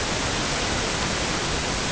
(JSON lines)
{"label": "ambient", "recorder": "HydroMoth"}